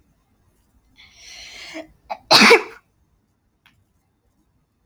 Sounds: Sneeze